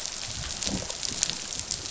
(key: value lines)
label: biophony, rattle response
recorder: SoundTrap 500